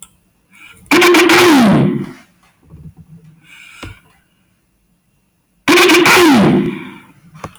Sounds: Throat clearing